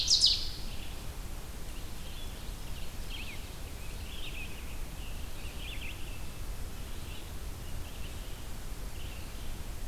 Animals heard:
Ovenbird (Seiurus aurocapilla), Red-eyed Vireo (Vireo olivaceus)

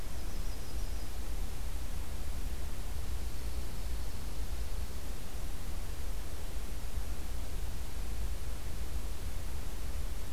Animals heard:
Dark-eyed Junco (Junco hyemalis), Yellow-rumped Warbler (Setophaga coronata)

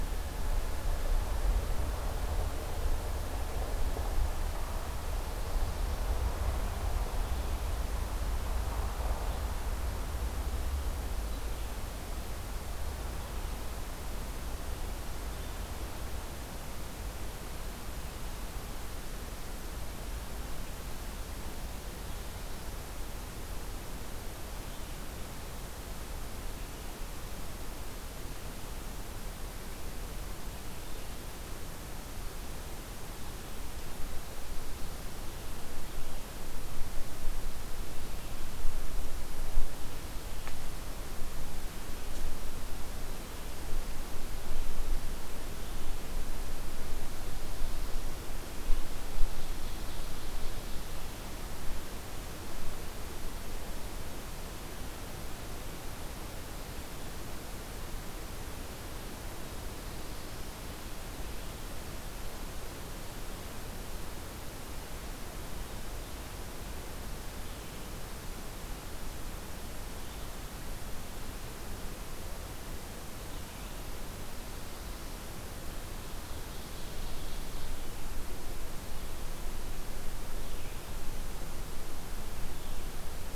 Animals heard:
Ovenbird (Seiurus aurocapilla), Black-throated Blue Warbler (Setophaga caerulescens)

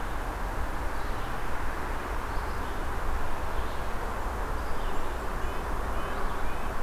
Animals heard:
Red-breasted Nuthatch (Sitta canadensis), Red-eyed Vireo (Vireo olivaceus)

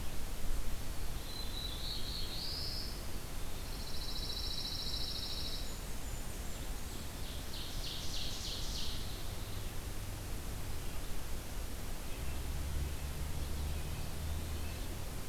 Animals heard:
Blackburnian Warbler (Setophaga fusca), Ovenbird (Seiurus aurocapilla), Black-throated Blue Warbler (Setophaga caerulescens), Pine Warbler (Setophaga pinus), Red-breasted Nuthatch (Sitta canadensis)

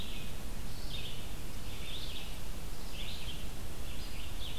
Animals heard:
Red-eyed Vireo (Vireo olivaceus)

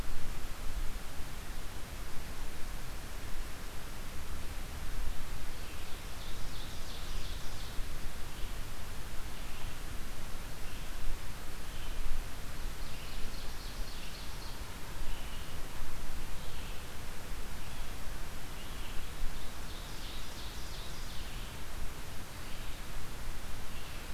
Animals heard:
Ovenbird (Seiurus aurocapilla), Red-eyed Vireo (Vireo olivaceus)

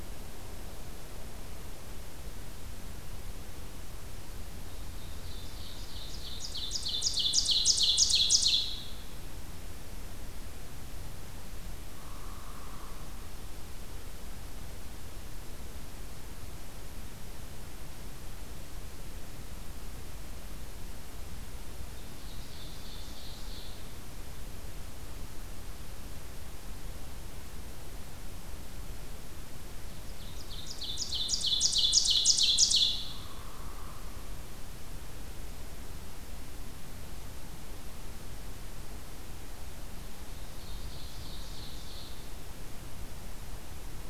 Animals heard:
Ovenbird (Seiurus aurocapilla), Hairy Woodpecker (Dryobates villosus)

